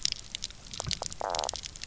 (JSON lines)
{"label": "biophony, knock croak", "recorder": "SoundTrap 300"}